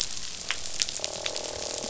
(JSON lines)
{"label": "biophony, croak", "recorder": "SoundTrap 500"}